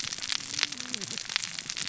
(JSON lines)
{"label": "biophony, cascading saw", "recorder": "SoundTrap 600 or HydroMoth"}